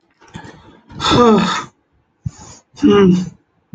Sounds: Sigh